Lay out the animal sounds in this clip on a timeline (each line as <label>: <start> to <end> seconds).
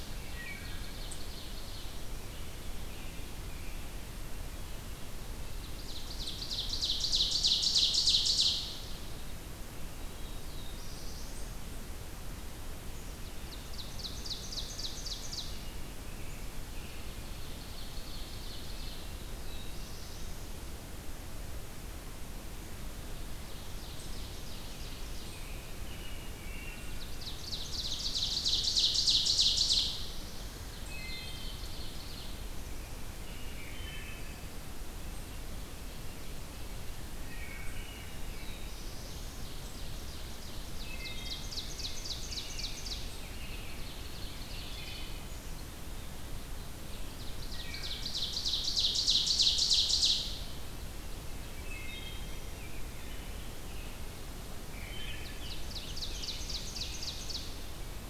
Wood Thrush (Hylocichla mustelina): 0.2 to 0.8 seconds
Ovenbird (Seiurus aurocapilla): 0.4 to 2.0 seconds
American Robin (Turdus migratorius): 2.0 to 3.9 seconds
Ovenbird (Seiurus aurocapilla): 5.6 to 8.9 seconds
Black-throated Blue Warbler (Setophaga caerulescens): 10.0 to 11.5 seconds
Ovenbird (Seiurus aurocapilla): 13.3 to 15.5 seconds
American Robin (Turdus migratorius): 15.3 to 17.1 seconds
Ovenbird (Seiurus aurocapilla): 17.1 to 19.1 seconds
Black-throated Blue Warbler (Setophaga caerulescens): 19.2 to 20.5 seconds
Ovenbird (Seiurus aurocapilla): 23.3 to 25.3 seconds
American Robin (Turdus migratorius): 25.2 to 27.1 seconds
Ovenbird (Seiurus aurocapilla): 27.0 to 30.0 seconds
Black-throated Blue Warbler (Setophaga caerulescens): 29.8 to 30.8 seconds
Wood Thrush (Hylocichla mustelina): 30.7 to 31.5 seconds
Ovenbird (Seiurus aurocapilla): 30.8 to 32.5 seconds
American Robin (Turdus migratorius): 32.6 to 34.5 seconds
Wood Thrush (Hylocichla mustelina): 33.9 to 34.4 seconds
Ovenbird (Seiurus aurocapilla): 35.4 to 37.1 seconds
Wood Thrush (Hylocichla mustelina): 37.3 to 38.2 seconds
Black-throated Blue Warbler (Setophaga caerulescens): 38.1 to 39.4 seconds
Ovenbird (Seiurus aurocapilla): 38.8 to 45.1 seconds
Wood Thrush (Hylocichla mustelina): 40.9 to 41.5 seconds
Wood Thrush (Hylocichla mustelina): 44.6 to 45.1 seconds
Ovenbird (Seiurus aurocapilla): 46.6 to 50.5 seconds
Wood Thrush (Hylocichla mustelina): 47.4 to 48.2 seconds
Wood Thrush (Hylocichla mustelina): 51.7 to 52.4 seconds
Rose-breasted Grosbeak (Pheucticus ludovicianus): 52.2 to 54.0 seconds
Scarlet Tanager (Piranga olivacea): 54.6 to 57.3 seconds
Wood Thrush (Hylocichla mustelina): 54.7 to 55.4 seconds
Ovenbird (Seiurus aurocapilla): 55.0 to 57.6 seconds